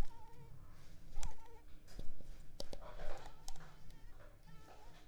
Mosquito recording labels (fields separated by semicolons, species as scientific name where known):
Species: Culex pipiens complex; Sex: female; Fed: unfed; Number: one; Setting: cup